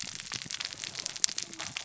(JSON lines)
{"label": "biophony, cascading saw", "recorder": "SoundTrap 600 or HydroMoth"}